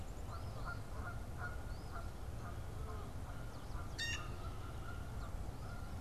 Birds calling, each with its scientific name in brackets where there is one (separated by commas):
Eastern Phoebe (Sayornis phoebe), Canada Goose (Branta canadensis), Blue Jay (Cyanocitta cristata)